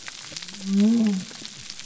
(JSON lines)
{"label": "biophony", "recorder": "SoundTrap 300"}